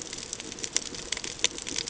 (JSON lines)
{"label": "ambient", "recorder": "HydroMoth"}